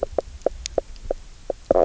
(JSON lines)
{"label": "biophony, knock croak", "recorder": "SoundTrap 300"}